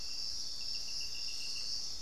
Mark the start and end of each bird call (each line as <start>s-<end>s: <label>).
0.0s-2.0s: Thrush-like Wren (Campylorhynchus turdinus)